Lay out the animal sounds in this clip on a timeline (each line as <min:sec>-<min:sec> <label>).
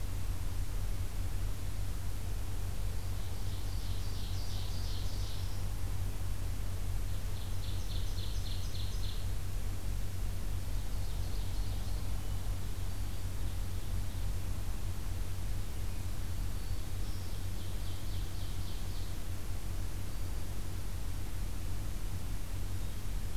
0:02.7-0:05.6 Ovenbird (Seiurus aurocapilla)
0:07.0-0:09.3 Ovenbird (Seiurus aurocapilla)
0:10.6-0:12.1 Ovenbird (Seiurus aurocapilla)
0:12.7-0:14.3 Ovenbird (Seiurus aurocapilla)
0:12.8-0:13.4 Black-throated Green Warbler (Setophaga virens)
0:16.2-0:17.3 Black-throated Green Warbler (Setophaga virens)
0:16.8-0:19.2 Ovenbird (Seiurus aurocapilla)
0:20.0-0:20.6 Black-throated Green Warbler (Setophaga virens)